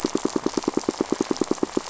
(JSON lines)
{"label": "biophony, pulse", "recorder": "SoundTrap 500"}